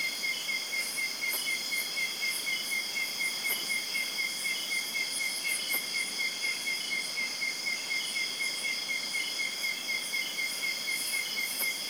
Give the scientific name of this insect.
Mecopoda elongata